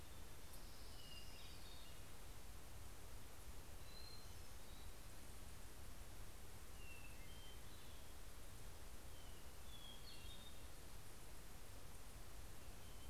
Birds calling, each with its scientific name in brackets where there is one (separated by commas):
Hermit Thrush (Catharus guttatus), Orange-crowned Warbler (Leiothlypis celata)